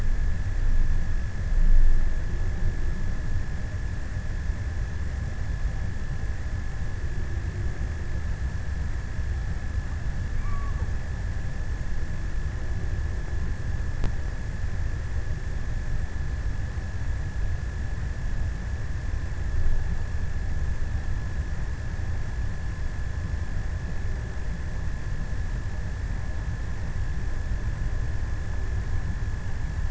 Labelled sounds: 9.8	11.8	killer whale, offshore, 0.44 to 1.4 kHz

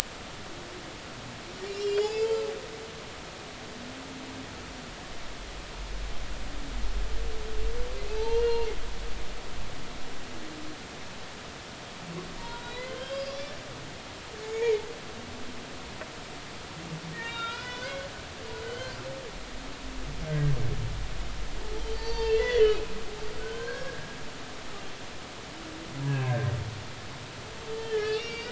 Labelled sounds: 1.7	2.4	humpback whale, 2.5 to 7.2 kHz
8.1	8.7	humpback whale, 0.83 to 4.3 kHz
12.4	13.3	humpback whale, 0.90 to 5.0 kHz
14.4	14.8	humpback whale, 2.1 to 6.8 kHz
17.2	18.0	humpback whale, 1.3 to 5.0 kHz
18.6	18.9	humpback whale, 2.9 to 3.2 kHz
20.3	20.5	humpback whale, 1.5 to 1.8 kHz
21.9	22.8	humpback whale, 0.83 to 4.6 kHz
23.4	24.1	humpback whale, 0.96 to 4.4 kHz
27.7	28.5	humpback whale, 1.6 to 4.9 kHz

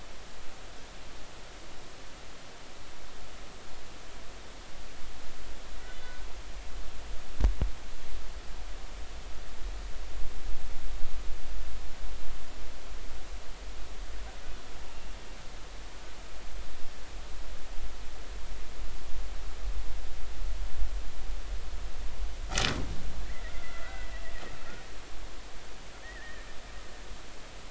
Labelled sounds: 5.8	6.1	humpback whale, 1.9 to 2.0 kHz
23.6	24.1	humpback whale, 1.3 to 2.1 kHz
26.0	26.5	humpback whale, 1.7 to 2.0 kHz

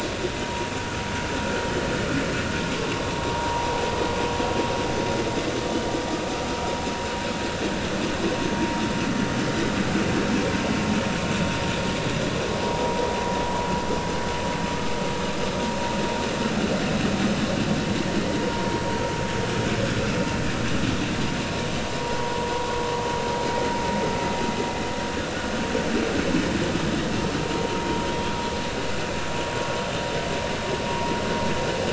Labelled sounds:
2.8	3.7	vessel noise, 0.80 to 1.1 kHz
12.6	13.0	vessel noise, 0.83 to 1.1 kHz
22.0	22.7	vessel noise, 0.83 to 1.1 kHz
28.1	28.3	vessel noise, 3.2 to 3.4 kHz

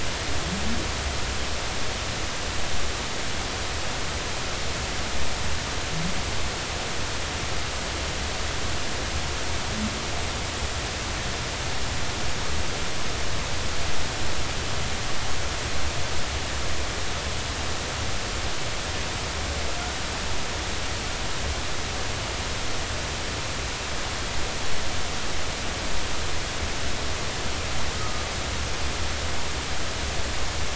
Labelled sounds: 27.9	28.3	humpback whale, 1.2 to 1.3 kHz

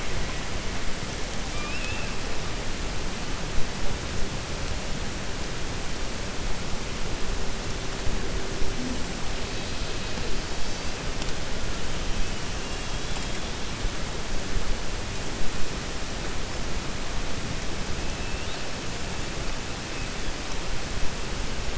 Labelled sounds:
1.4	2.1	killer whale, 1.2 to 3.6 kHz
12.6	13.4	killer whale, 2.6 to 4.0 kHz

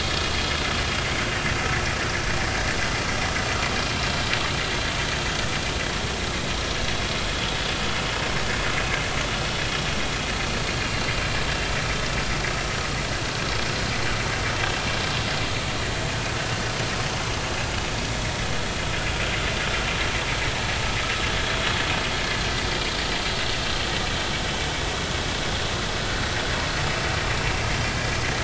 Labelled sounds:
9.6	9.8	vessel noise, 5.1 to 5.4 kHz

